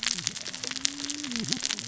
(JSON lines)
{"label": "biophony, cascading saw", "recorder": "SoundTrap 600 or HydroMoth"}